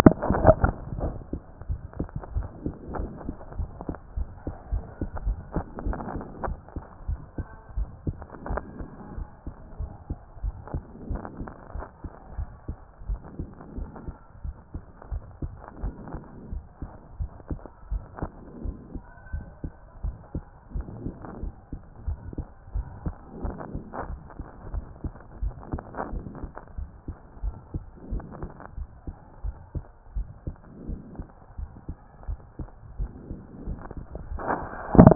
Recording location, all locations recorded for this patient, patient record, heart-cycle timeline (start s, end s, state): pulmonary valve (PV)
aortic valve (AV)+pulmonary valve (PV)+tricuspid valve (TV)+mitral valve (MV)
#Age: nan
#Sex: Female
#Height: nan
#Weight: nan
#Pregnancy status: True
#Murmur: Absent
#Murmur locations: nan
#Most audible location: nan
#Systolic murmur timing: nan
#Systolic murmur shape: nan
#Systolic murmur grading: nan
#Systolic murmur pitch: nan
#Systolic murmur quality: nan
#Diastolic murmur timing: nan
#Diastolic murmur shape: nan
#Diastolic murmur grading: nan
#Diastolic murmur pitch: nan
#Diastolic murmur quality: nan
#Outcome: Normal
#Campaign: 2014 screening campaign
0.00	1.00	unannotated
1.00	1.14	S1
1.14	1.32	systole
1.32	1.40	S2
1.40	1.68	diastole
1.68	1.80	S1
1.80	1.98	systole
1.98	2.08	S2
2.08	2.34	diastole
2.34	2.48	S1
2.48	2.64	systole
2.64	2.74	S2
2.74	2.96	diastole
2.96	3.10	S1
3.10	3.26	systole
3.26	3.34	S2
3.34	3.56	diastole
3.56	3.70	S1
3.70	3.88	systole
3.88	3.96	S2
3.96	4.16	diastole
4.16	4.28	S1
4.28	4.46	systole
4.46	4.56	S2
4.56	4.72	diastole
4.72	4.84	S1
4.84	5.00	systole
5.00	5.10	S2
5.10	5.24	diastole
5.24	5.38	S1
5.38	5.54	systole
5.54	5.64	S2
5.64	5.84	diastole
5.84	5.98	S1
5.98	6.14	systole
6.14	6.24	S2
6.24	6.44	diastole
6.44	6.58	S1
6.58	6.74	systole
6.74	6.84	S2
6.84	7.08	diastole
7.08	7.20	S1
7.20	7.38	systole
7.38	7.46	S2
7.46	7.76	diastole
7.76	7.88	S1
7.88	8.06	systole
8.06	8.16	S2
8.16	8.48	diastole
8.48	8.62	S1
8.62	8.78	systole
8.78	8.88	S2
8.88	9.16	diastole
9.16	9.28	S1
9.28	9.46	systole
9.46	9.54	S2
9.54	9.78	diastole
9.78	9.90	S1
9.90	10.08	systole
10.08	10.18	S2
10.18	10.42	diastole
10.42	10.54	S1
10.54	10.72	systole
10.72	10.82	S2
10.82	11.08	diastole
11.08	11.22	S1
11.22	11.38	systole
11.38	11.50	S2
11.50	11.74	diastole
11.74	11.86	S1
11.86	12.02	systole
12.02	12.10	S2
12.10	12.36	diastole
12.36	12.48	S1
12.48	12.68	systole
12.68	12.76	S2
12.76	13.08	diastole
13.08	13.20	S1
13.20	13.38	systole
13.38	13.48	S2
13.48	13.76	diastole
13.76	13.90	S1
13.90	14.06	systole
14.06	14.16	S2
14.16	14.44	diastole
14.44	14.56	S1
14.56	14.74	systole
14.74	14.82	S2
14.82	15.10	diastole
15.10	15.22	S1
15.22	15.42	systole
15.42	15.52	S2
15.52	15.82	diastole
15.82	15.94	S1
15.94	16.12	systole
16.12	16.22	S2
16.22	16.52	diastole
16.52	16.64	S1
16.64	16.80	systole
16.80	16.90	S2
16.90	17.18	diastole
17.18	17.30	S1
17.30	17.50	systole
17.50	17.60	S2
17.60	17.90	diastole
17.90	18.02	S1
18.02	18.20	systole
18.20	18.30	S2
18.30	18.64	diastole
18.64	18.76	S1
18.76	18.94	systole
18.94	19.02	S2
19.02	19.32	diastole
19.32	19.44	S1
19.44	19.62	systole
19.62	19.72	S2
19.72	20.04	diastole
20.04	20.16	S1
20.16	20.34	systole
20.34	20.44	S2
20.44	20.74	diastole
20.74	20.86	S1
20.86	21.04	systole
21.04	21.14	S2
21.14	21.42	diastole
21.42	21.54	S1
21.54	21.72	systole
21.72	21.80	S2
21.80	22.06	diastole
22.06	22.18	S1
22.18	22.36	systole
22.36	22.46	S2
22.46	22.74	diastole
22.74	22.86	S1
22.86	23.04	systole
23.04	23.14	S2
23.14	23.42	diastole
23.42	23.56	S1
23.56	23.72	systole
23.72	23.84	S2
23.84	24.08	diastole
24.08	24.20	S1
24.20	24.38	systole
24.38	24.46	S2
24.46	24.72	diastole
24.72	24.84	S1
24.84	25.04	systole
25.04	25.12	S2
25.12	25.42	diastole
25.42	25.54	S1
25.54	25.72	systole
25.72	25.82	S2
25.82	26.12	diastole
26.12	26.24	S1
26.24	26.42	systole
26.42	26.50	S2
26.50	26.78	diastole
26.78	26.88	S1
26.88	27.08	systole
27.08	27.16	S2
27.16	27.42	diastole
27.42	27.56	S1
27.56	27.74	systole
27.74	27.82	S2
27.82	28.10	diastole
28.10	28.24	S1
28.24	28.40	systole
28.40	28.50	S2
28.50	28.78	diastole
28.78	28.88	S1
28.88	29.06	systole
29.06	29.16	S2
29.16	29.44	diastole
29.44	29.56	S1
29.56	29.74	systole
29.74	29.84	S2
29.84	30.16	diastole
30.16	30.28	S1
30.28	30.46	systole
30.46	30.56	S2
30.56	30.88	diastole
30.88	31.00	S1
31.00	31.18	systole
31.18	31.28	S2
31.28	31.58	diastole
31.58	31.70	S1
31.70	31.88	systole
31.88	31.96	S2
31.96	32.28	diastole
32.28	32.40	S1
32.40	32.58	systole
32.58	32.68	S2
32.68	32.98	diastole
32.98	33.10	S1
33.10	33.30	systole
33.30	33.38	S2
33.38	33.66	diastole
33.66	35.15	unannotated